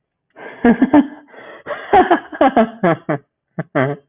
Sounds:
Laughter